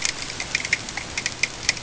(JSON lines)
{"label": "ambient", "recorder": "HydroMoth"}